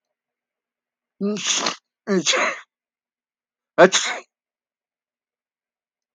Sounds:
Sneeze